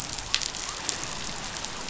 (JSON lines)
{"label": "biophony", "recorder": "SoundTrap 500"}